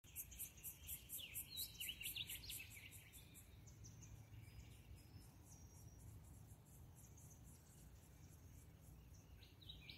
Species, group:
Yoyetta celis, Cicadidae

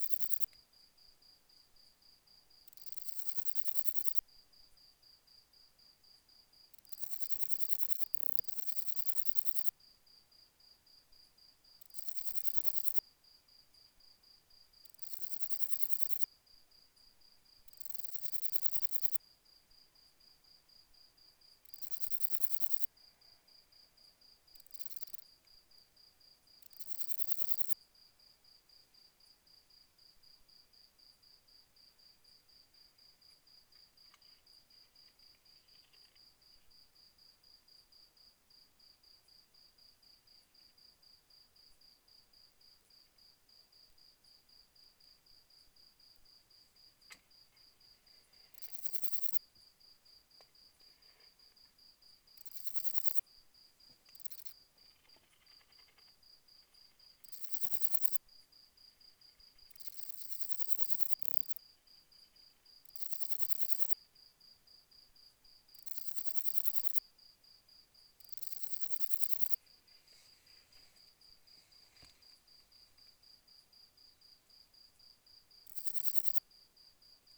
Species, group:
Parnassiana tymphrestos, Orthoptera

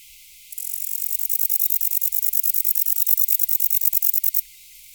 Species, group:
Bicolorana bicolor, Orthoptera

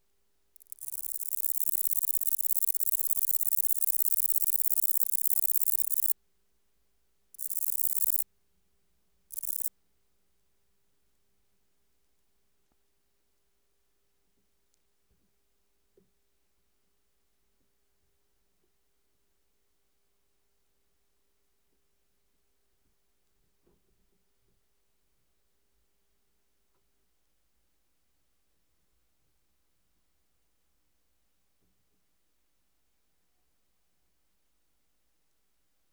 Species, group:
Bicolorana bicolor, Orthoptera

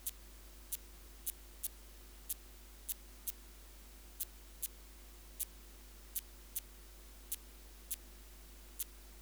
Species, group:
Yersinella raymondii, Orthoptera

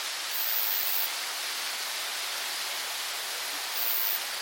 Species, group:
Roeseliana roeselii, Orthoptera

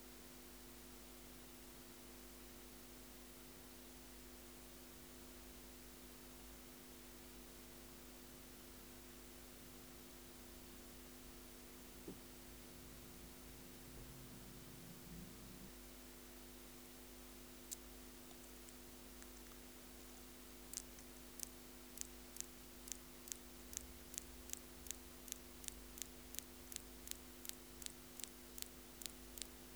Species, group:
Poecilimon elegans, Orthoptera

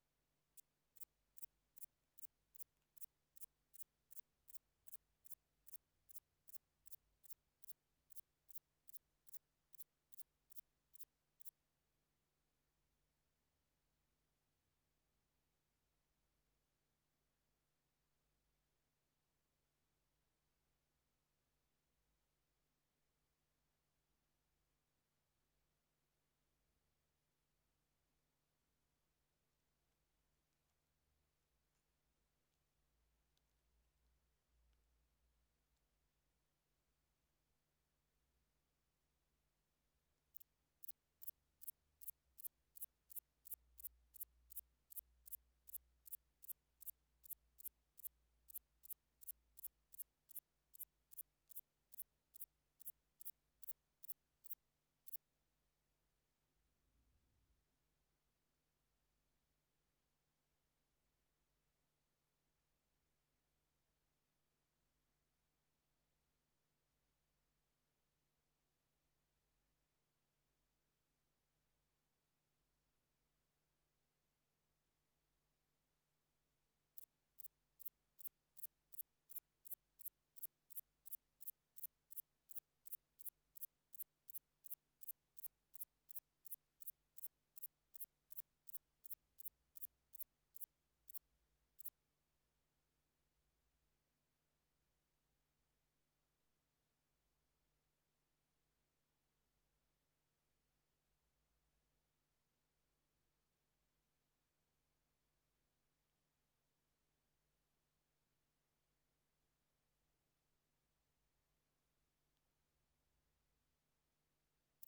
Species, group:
Antaxius spinibrachius, Orthoptera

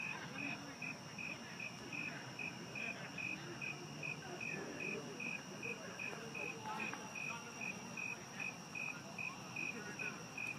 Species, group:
Oecanthus fultoni, Orthoptera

